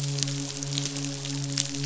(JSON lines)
{"label": "biophony, midshipman", "recorder": "SoundTrap 500"}